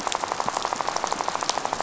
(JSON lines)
{"label": "biophony, rattle", "recorder": "SoundTrap 500"}